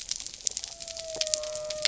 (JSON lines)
{"label": "biophony", "recorder": "SoundTrap 300"}